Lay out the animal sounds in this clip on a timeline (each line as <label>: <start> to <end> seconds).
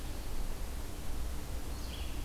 Red-eyed Vireo (Vireo olivaceus): 1.6 to 2.2 seconds